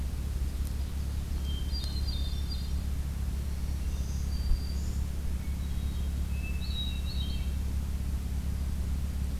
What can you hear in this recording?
Ovenbird, Hermit Thrush, Black-throated Green Warbler